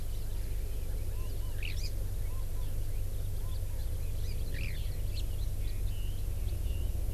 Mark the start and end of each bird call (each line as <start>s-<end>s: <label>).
1.6s-1.8s: Eurasian Skylark (Alauda arvensis)
1.8s-1.9s: Hawaii Amakihi (Chlorodrepanis virens)
4.5s-4.8s: Eurasian Skylark (Alauda arvensis)
4.8s-7.1s: Red-billed Leiothrix (Leiothrix lutea)
5.1s-5.2s: Hawaii Amakihi (Chlorodrepanis virens)